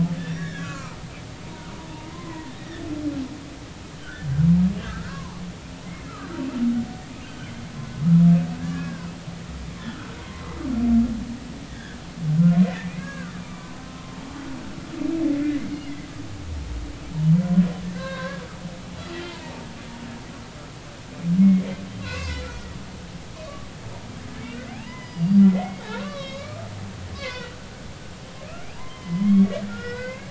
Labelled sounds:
0.2	1.0	humpback whale, 0.86 to 2.6 kHz
1.4	1.7	humpback whale, 0.90 to 1.0 kHz
2.1	2.5	humpback whale, 0.90 to 2.1 kHz
4.0	5.4	humpback whale, 0.83 to 1.8 kHz
7.3	7.7	humpback whale, 2.0 to 3.2 kHz
8.6	9.1	humpback whale, 1.5 to 1.8 kHz
10.2	10.6	humpback whale, 0.93 to 2.2 kHz
11.7	14.2	humpback whale, 1.0 to 3.6 kHz
15.4	15.7	humpback whale, 1.9 to 2.1 kHz
17.9	19.6	humpback whale, 0.86 to 1.7 kHz
21.4	22.8	humpback whale, 0.93 to 2.8 kHz
24.4	26.7	humpback whale, 0.80 to 5.1 kHz
27.1	27.6	humpback whale, 0.96 to 4.6 kHz
28.7	30.2	humpback whale, 0.90 to 3.2 kHz

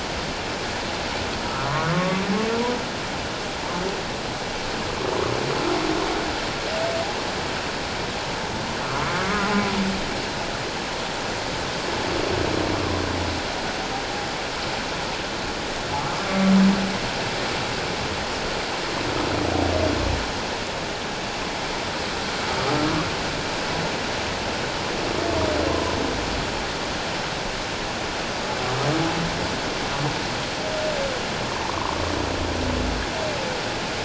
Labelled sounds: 1.4	2.2	humpback whale, 0.97 to 1.5 kHz
8.8	9.7	humpback whale, 0.97 to 1.4 kHz
12.7	13.0	humpback whale, 0.97 to 1.2 kHz
25.7	26.0	humpback whale, 0.94 to 1.1 kHz
31.6	32.0	humpback whale, 0.84 to 1.2 kHz

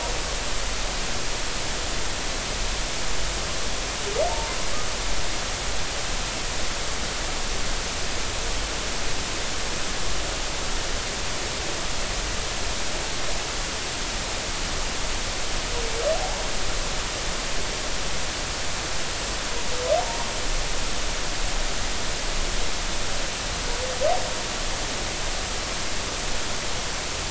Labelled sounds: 20.0	20.3	humpback whale, 0.86 to 0.99 kHz

